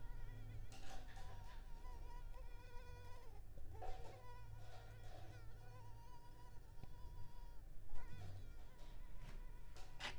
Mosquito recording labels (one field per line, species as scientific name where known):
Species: Culex pipiens complex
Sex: female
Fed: unfed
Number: one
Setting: cup